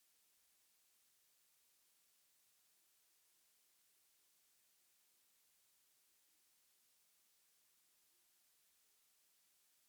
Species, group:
Isophya modesta, Orthoptera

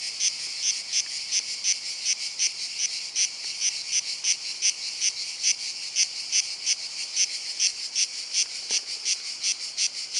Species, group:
Cicada orni, Cicadidae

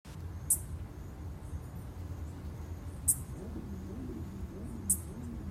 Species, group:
Microcentrum rhombifolium, Orthoptera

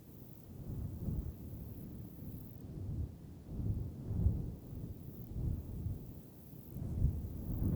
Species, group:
Platycleis iberica, Orthoptera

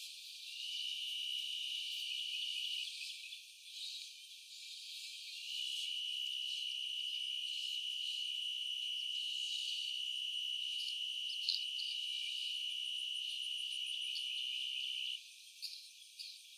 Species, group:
Oecanthus niveus, Orthoptera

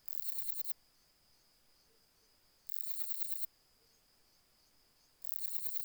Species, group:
Parnassiana fusca, Orthoptera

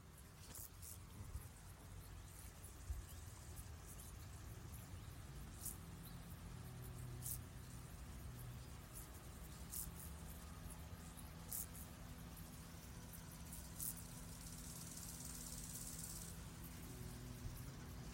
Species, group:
Chorthippus brunneus, Orthoptera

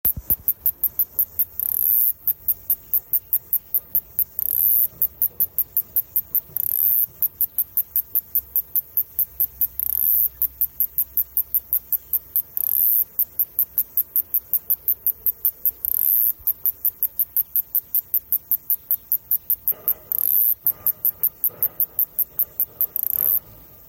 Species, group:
Kikihia muta, Cicadidae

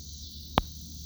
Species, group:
Neotibicen winnemanna, Cicadidae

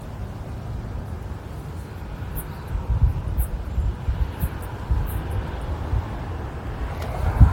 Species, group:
Caedicia simplex, Orthoptera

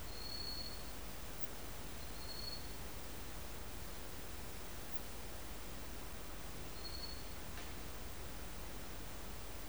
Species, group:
Phaneroptera falcata, Orthoptera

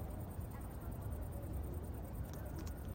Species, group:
Tettigonia viridissima, Orthoptera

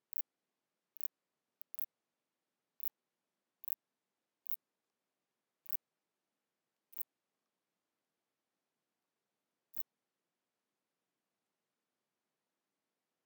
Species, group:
Phaneroptera nana, Orthoptera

